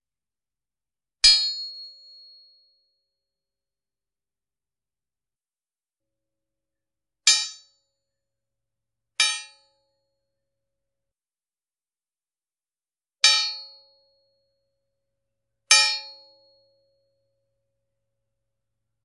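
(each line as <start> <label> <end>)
1.2 Metallic clang as a hammer hits a crowbar. 1.9
7.3 Metallic clang as a hammer hits a crowbar. 7.6
9.1 Metallic clang as a hammer hits a crowbar. 9.5
13.2 Metallic clang as a hammer hits a crowbar. 13.8
15.7 Metallic clang as a hammer hits a crowbar. 16.2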